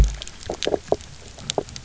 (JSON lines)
{"label": "biophony, knock croak", "recorder": "SoundTrap 300"}